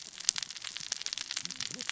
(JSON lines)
{"label": "biophony, cascading saw", "recorder": "SoundTrap 600 or HydroMoth"}